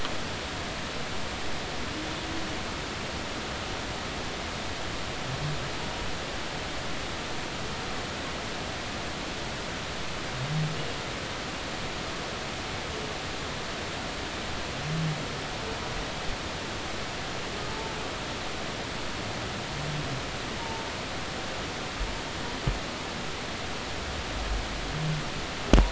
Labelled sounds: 20.6	20.9	humpback whale, 0.83 to 0.96 kHz

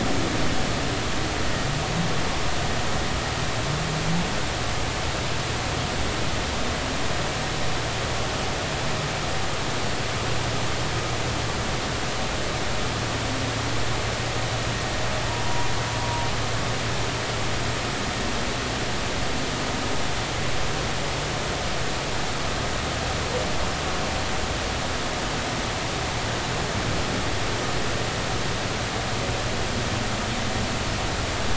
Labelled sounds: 15.3	15.7	humpback whale, 0.90 to 0.99 kHz

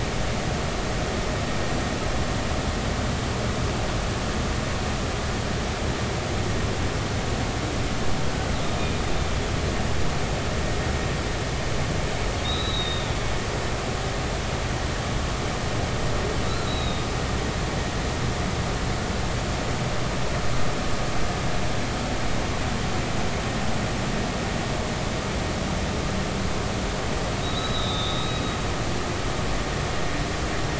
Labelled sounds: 12.4	13.2	humpback whale, 1.2 to 4.1 kHz
16.7	17.1	humpback whale, 3.6 to 4.0 kHz
27.4	28.4	humpback whale, 3.6 to 4.0 kHz

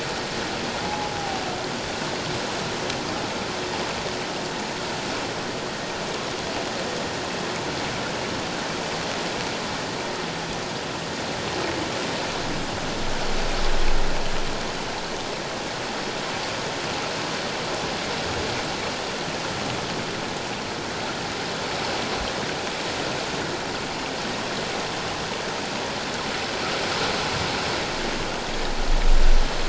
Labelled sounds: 0.8	1.1	humpback whale, 0.78 to 0.91 kHz

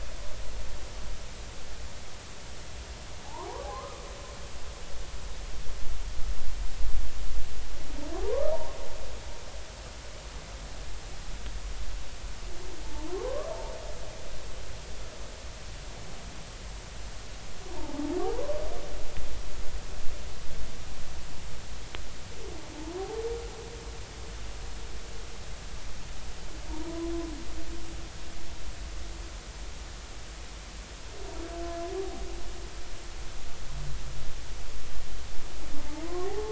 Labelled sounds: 3.2	4.0	humpback whale, 0.80 to 1.3 kHz
8.2	8.5	humpback whale, 0.80 to 1.3 kHz
12.8	13.5	humpback whale, 0.83 to 1.2 kHz
17.7	18.5	humpback whale, 0.80 to 1.1 kHz
26.7	27.1	humpback whale, 0.86 to 1.1 kHz
35.9	36.5	humpback whale, 0.80 to 1.2 kHz

